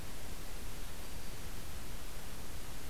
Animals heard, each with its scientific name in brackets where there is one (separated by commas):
Black-throated Green Warbler (Setophaga virens)